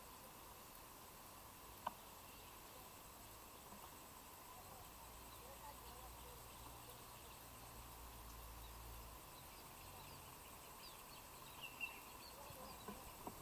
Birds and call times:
Common Bulbul (Pycnonotus barbatus): 0:11.8

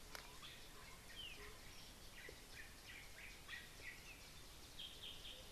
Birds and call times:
Waller's Starling (Onychognathus walleri): 0:01.3
Yellow-whiskered Greenbul (Eurillas latirostris): 0:03.0

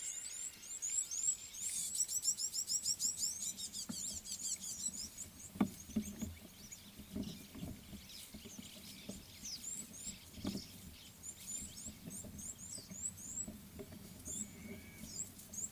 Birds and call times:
Rattling Cisticola (Cisticola chiniana): 0:01.7
Red-cheeked Cordonbleu (Uraeginthus bengalus): 0:02.8, 0:12.7

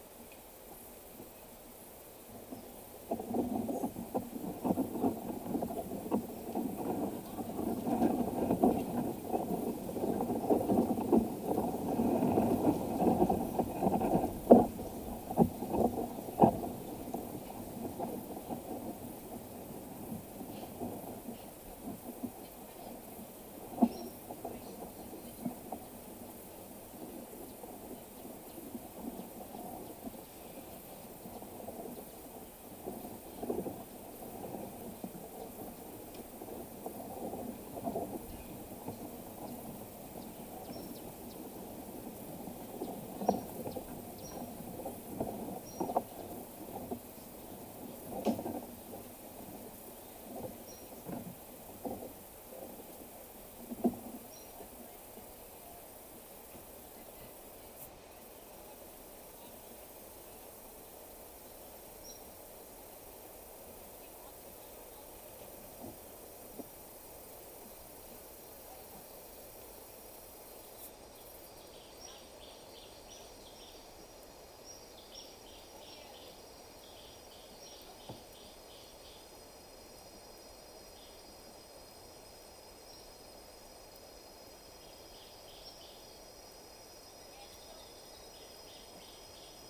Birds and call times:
Cinnamon-chested Bee-eater (Merops oreobates): 0:23.8, 0:40.5, 0:44.1, 0:54.1, 1:01.9, 1:15.0
Gray Apalis (Apalis cinerea): 1:12.6, 1:28.6

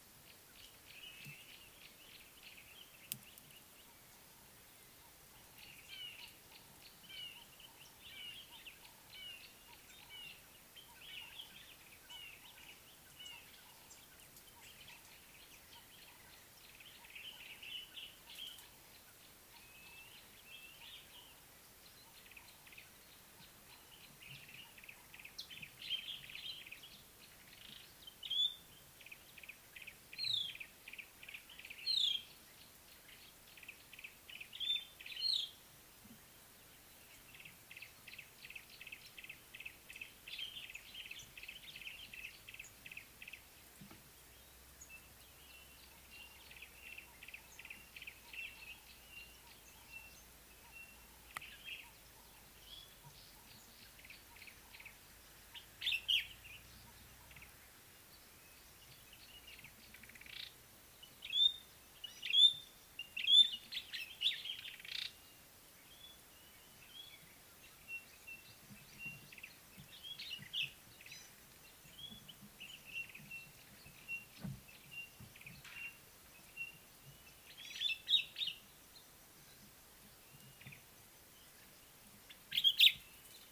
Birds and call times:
Gray-backed Camaroptera (Camaroptera brevicaudata): 0:06.6
Red-fronted Barbet (Tricholaema diademata): 0:09.3
Common Bulbul (Pycnonotus barbatus): 0:17.6, 0:55.9, 1:10.6, 1:18.2
Yellow-breasted Apalis (Apalis flavida): 0:24.9, 0:31.0, 0:39.3
White-browed Robin-Chat (Cossypha heuglini): 0:30.4, 0:35.3
White-browed Crombec (Sylvietta leucophrys): 1:02.4

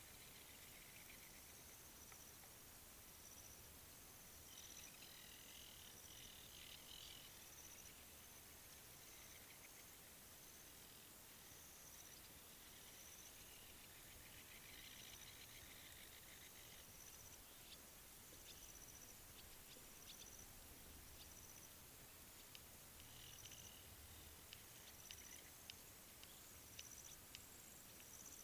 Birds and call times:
African Jacana (Actophilornis africanus): 0:05.7

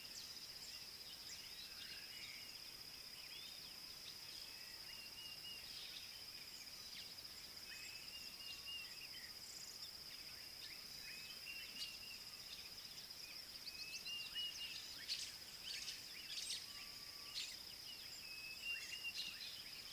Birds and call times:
Dideric Cuckoo (Chrysococcyx caprius): 0:05.3, 0:08.5, 0:14.3, 0:18.7
White-browed Sparrow-Weaver (Plocepasser mahali): 0:15.8

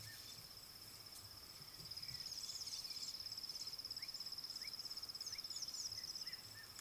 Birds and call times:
Rattling Cisticola (Cisticola chiniana): 0:05.7

